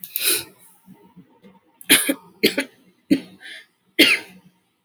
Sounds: Cough